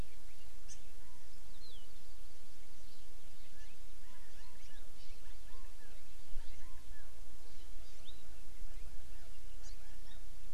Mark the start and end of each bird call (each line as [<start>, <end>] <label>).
[0.62, 0.82] Hawaii Amakihi (Chlorodrepanis virens)
[1.02, 1.22] Chinese Hwamei (Garrulax canorus)
[1.42, 2.72] Hawaii Amakihi (Chlorodrepanis virens)
[3.52, 3.72] Hawaii Amakihi (Chlorodrepanis virens)
[4.02, 4.82] Chinese Hwamei (Garrulax canorus)
[4.52, 4.72] Hawaii Amakihi (Chlorodrepanis virens)
[5.02, 5.12] Hawaii Amakihi (Chlorodrepanis virens)
[5.22, 6.02] Chinese Hwamei (Garrulax canorus)
[6.42, 7.12] Chinese Hwamei (Garrulax canorus)
[7.82, 8.02] Hawaii Amakihi (Chlorodrepanis virens)
[9.62, 9.72] Hawaii Amakihi (Chlorodrepanis virens)
[9.62, 10.22] Chinese Hwamei (Garrulax canorus)